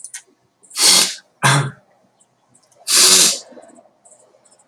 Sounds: Sniff